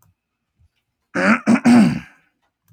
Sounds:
Throat clearing